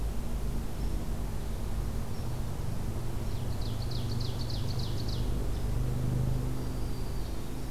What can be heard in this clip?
Ovenbird, Black-throated Green Warbler